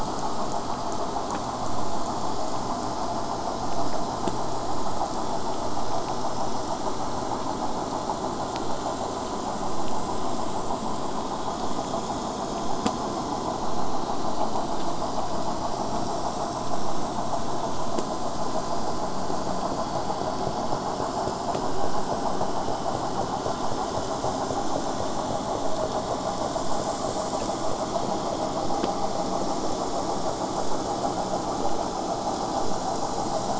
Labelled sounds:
28.6	33.5	vessel noise, 0 to 8.0 kHz

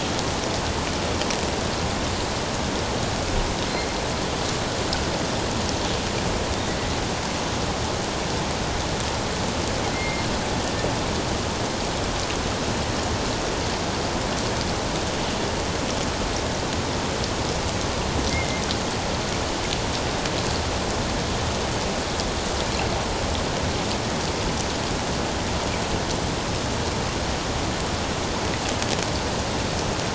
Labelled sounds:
9.9	10.3	killer whale, offshore, 2.0 to 2.2 kHz
18.3	18.6	killer whale, offshore, 2.0 to 2.2 kHz

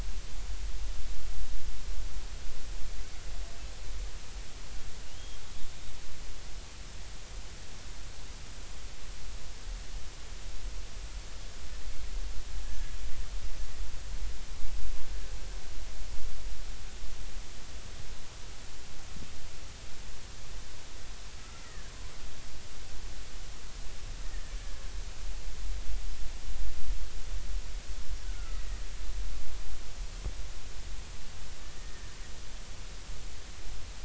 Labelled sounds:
5.1	5.4	killer whale, Bigg's (transient), 2.8 to 3.3 kHz
21.6	21.9	killer whale, Bigg's (transient), 1.6 to 2.0 kHz
28.2	28.6	killer whale, Bigg's (transient), 1.2 to 1.5 kHz
31.8	32.1	killer whale, Bigg's (transient), 1.7 to 2.0 kHz

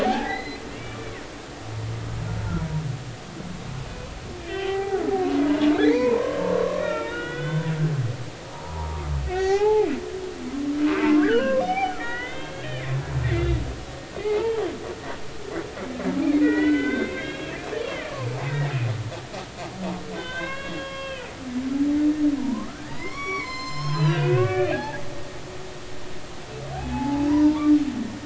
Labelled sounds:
0.0	1.0	humpback whale, 0.80 to 4.2 kHz
4.5	5.0	humpback whale, 0.80 to 3.2 kHz
5.5	7.7	humpback whale, 0.83 to 3.9 kHz
8.5	9.9	humpback whale, 0.80 to 4.5 kHz
10.8	12.7	humpback whale, 0.80 to 3.8 kHz
14.2	14.5	humpback whale, 0.80 to 0.99 kHz
16.4	18.8	humpback whale, 0.80 to 3.9 kHz
20.2	21.3	humpback whale, 0.99 to 3.9 kHz
22.4	25.0	humpback whale, 0.80 to 8.0 kHz
26.8	27.6	humpback whale, 0.80 to 2.6 kHz

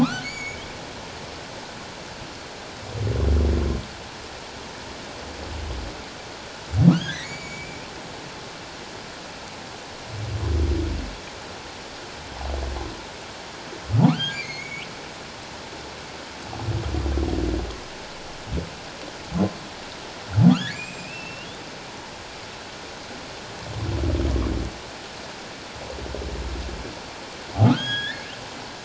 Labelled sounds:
0.0	0.6	humpback whale, 0.97 to 7.0 kHz
6.9	7.8	humpback whale, 1.2 to 7.0 kHz
14.0	14.9	humpback whale, 0.78 to 6.8 kHz
20.5	21.5	humpback whale, 1.1 to 7.6 kHz
27.6	28.2	humpback whale, 1.1 to 5.0 kHz

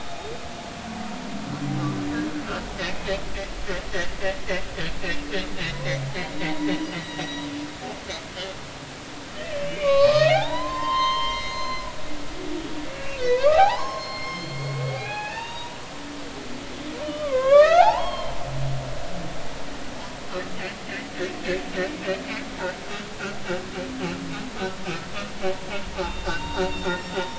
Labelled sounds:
2.8	3.1	humpback whale, 2.5 to 2.6 kHz
6.5	7.5	humpback whale, 0.80 to 6.0 kHz
9.6	11.9	humpback whale, 0.80 to 6.3 kHz
12.9	15.8	humpback whale, 0.80 to 6.7 kHz
17.1	18.3	humpback whale, 0.99 to 5.5 kHz
18.8	19.3	humpback whale, 0.80 to 1.2 kHz
25.9	27.2	humpback whale, 0.80 to 7.4 kHz

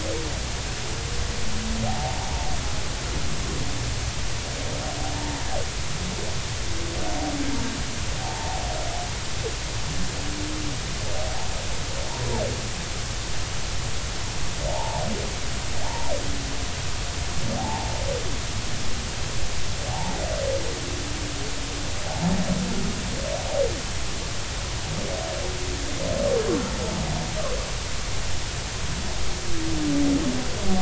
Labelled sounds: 1.9	2.2	humpback whale, 0.80 to 0.96 kHz
8.2	8.6	humpback whale, 0.80 to 0.96 kHz
14.7	15.0	humpback whale, 0.80 to 1.0 kHz
15.8	16.1	humpback whale, 0.80 to 0.99 kHz
17.6	17.9	humpback whale, 0.80 to 1.0 kHz
19.9	20.2	humpback whale, 0.80 to 0.99 kHz
22.1	22.3	humpback whale, 0.80 to 0.99 kHz

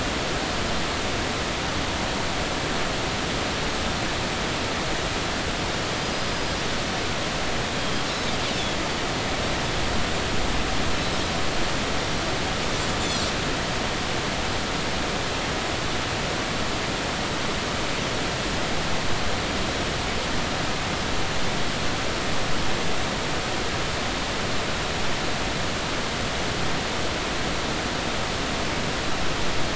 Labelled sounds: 6.0	6.5	Pacific white-sided dolphin, 4.8 to 5.0 kHz
7.8	8.8	Pacific white-sided dolphin, 3.1 to 4.1 kHz

